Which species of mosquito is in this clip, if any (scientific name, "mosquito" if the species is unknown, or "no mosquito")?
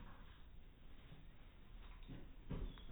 no mosquito